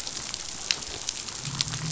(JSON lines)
{"label": "biophony", "recorder": "SoundTrap 500"}